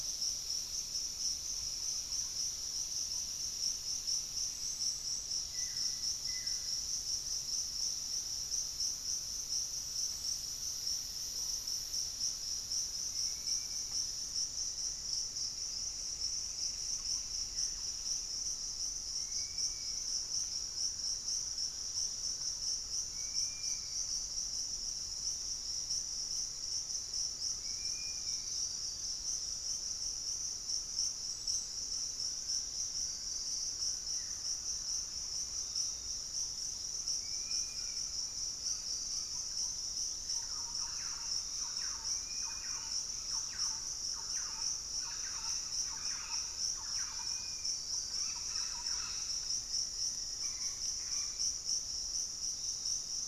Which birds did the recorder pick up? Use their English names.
Thrush-like Wren, Pygmy Antwren, Buff-throated Woodcreeper, Fasciated Antshrike, unidentified bird, Dusky-capped Flycatcher, Gray Antwren, Piratic Flycatcher, Black-faced Antthrush